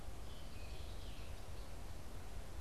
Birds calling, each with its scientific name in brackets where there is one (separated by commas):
Scarlet Tanager (Piranga olivacea)